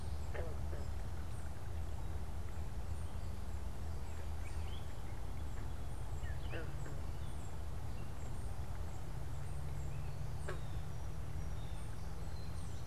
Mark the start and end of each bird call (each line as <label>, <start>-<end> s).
unidentified bird, 0.0-12.9 s
Gray Catbird (Dumetella carolinensis), 4.3-7.2 s
Blue Jay (Cyanocitta cristata), 10.2-12.9 s